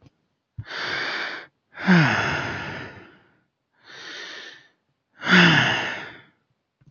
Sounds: Sigh